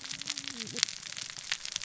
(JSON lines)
{"label": "biophony, cascading saw", "recorder": "SoundTrap 600 or HydroMoth"}